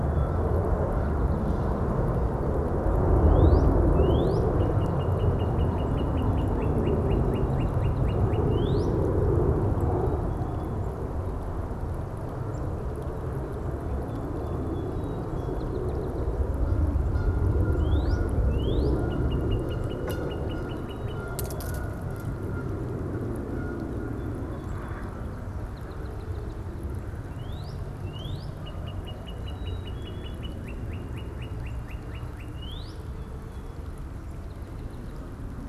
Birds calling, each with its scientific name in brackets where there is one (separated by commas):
Song Sparrow (Melospiza melodia), Canada Goose (Branta canadensis), Black-capped Chickadee (Poecile atricapillus), Northern Cardinal (Cardinalis cardinalis)